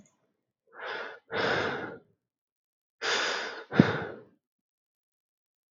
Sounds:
Sigh